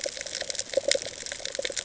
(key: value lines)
label: ambient
recorder: HydroMoth